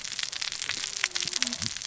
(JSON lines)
{"label": "biophony, cascading saw", "recorder": "SoundTrap 600 or HydroMoth"}